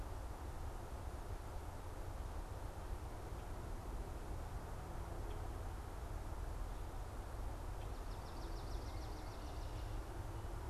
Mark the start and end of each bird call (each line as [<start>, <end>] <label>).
[7.78, 9.58] Swamp Sparrow (Melospiza georgiana)